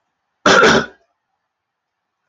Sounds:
Cough